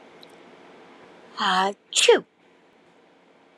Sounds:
Sneeze